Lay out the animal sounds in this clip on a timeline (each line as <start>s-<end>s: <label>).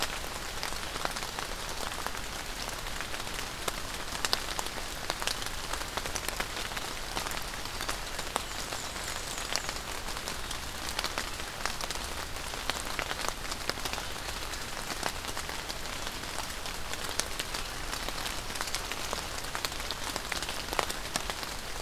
8.1s-9.8s: Black-and-white Warbler (Mniotilta varia)